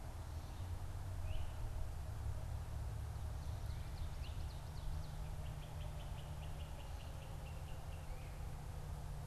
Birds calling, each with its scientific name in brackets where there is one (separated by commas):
Ovenbird (Seiurus aurocapilla), Great Crested Flycatcher (Myiarchus crinitus)